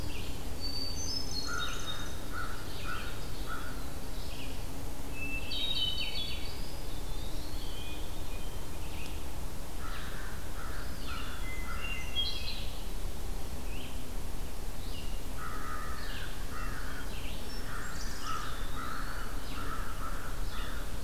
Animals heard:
Black-throated Blue Warbler (Setophaga caerulescens), Hermit Thrush (Catharus guttatus), Red-eyed Vireo (Vireo olivaceus), American Crow (Corvus brachyrhynchos), Great Crested Flycatcher (Myiarchus crinitus), Eastern Wood-Pewee (Contopus virens)

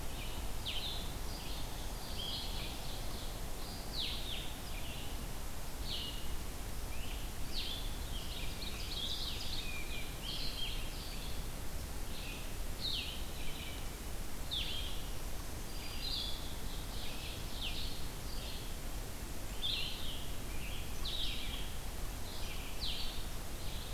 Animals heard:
Blue-headed Vireo (Vireo solitarius), Ovenbird (Seiurus aurocapilla)

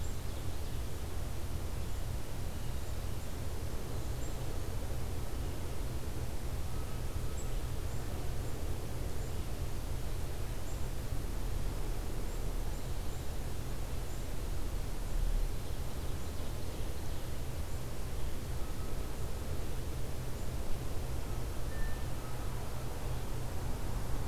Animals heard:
Ovenbird (Seiurus aurocapilla)

